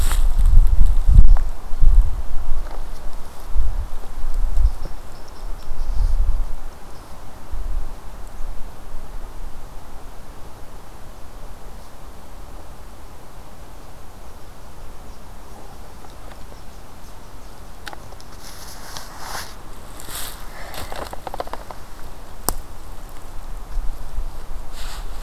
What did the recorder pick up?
Eastern Chipmunk